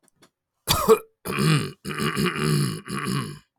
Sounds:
Throat clearing